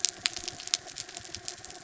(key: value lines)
label: anthrophony, mechanical
recorder: SoundTrap 300